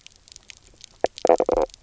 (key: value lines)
label: biophony, knock croak
recorder: SoundTrap 300